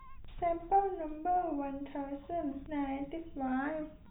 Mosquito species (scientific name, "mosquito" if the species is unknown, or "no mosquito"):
no mosquito